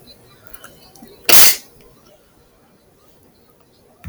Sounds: Sneeze